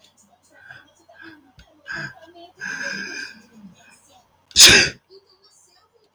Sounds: Sneeze